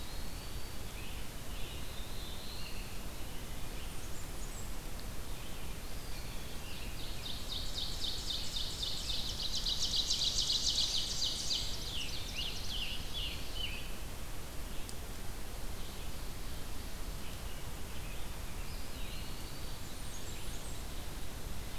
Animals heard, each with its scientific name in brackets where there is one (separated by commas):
Eastern Wood-Pewee (Contopus virens), Red-eyed Vireo (Vireo olivaceus), Ovenbird (Seiurus aurocapilla), Blackburnian Warbler (Setophaga fusca), Black-throated Blue Warbler (Setophaga caerulescens), Scarlet Tanager (Piranga olivacea)